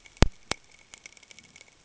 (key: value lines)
label: ambient
recorder: HydroMoth